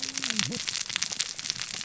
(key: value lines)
label: biophony, cascading saw
recorder: SoundTrap 600 or HydroMoth